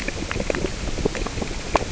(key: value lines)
label: biophony, grazing
recorder: SoundTrap 600 or HydroMoth